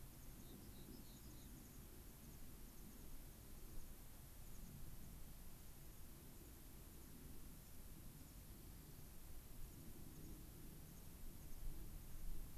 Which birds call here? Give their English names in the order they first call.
American Pipit, Rock Wren